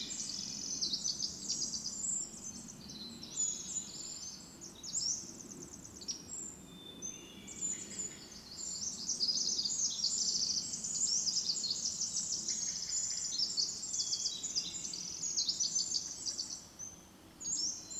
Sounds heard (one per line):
Pacific-slope Flycatcher song
Red-breasted Nuthatch song
Pacific Wren song
Hermit Thrush song
Brown Creeper call
Steller's Jay call